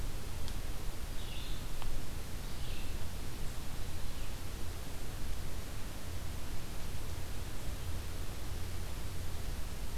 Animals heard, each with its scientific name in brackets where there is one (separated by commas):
Red-eyed Vireo (Vireo olivaceus)